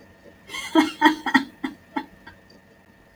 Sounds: Laughter